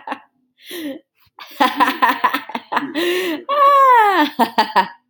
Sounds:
Laughter